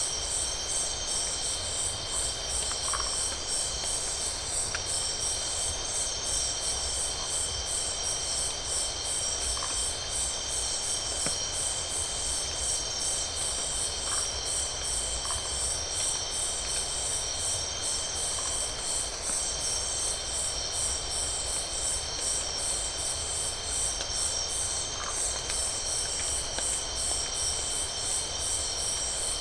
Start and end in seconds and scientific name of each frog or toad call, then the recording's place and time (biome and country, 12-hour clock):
2.8	3.2	Phyllomedusa distincta
9.5	9.8	Phyllomedusa distincta
14.0	14.2	Phyllomedusa distincta
15.2	15.4	Phyllomedusa distincta
24.9	25.2	Phyllomedusa distincta
Atlantic Forest, Brazil, 11:45pm